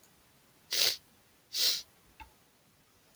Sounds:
Sniff